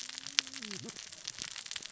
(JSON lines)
{"label": "biophony, cascading saw", "recorder": "SoundTrap 600 or HydroMoth"}